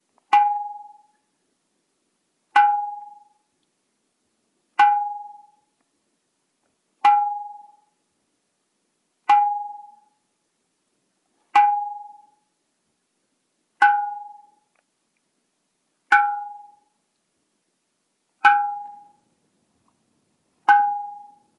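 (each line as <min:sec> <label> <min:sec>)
0:00.0 A brief metallic chime quickly fading and repeating at even intervals. 0:21.5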